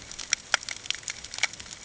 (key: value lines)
label: ambient
recorder: HydroMoth